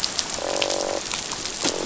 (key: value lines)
label: biophony, croak
recorder: SoundTrap 500